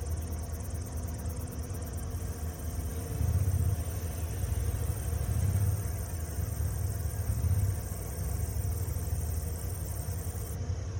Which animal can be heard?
Orchelimum silvaticum, an orthopteran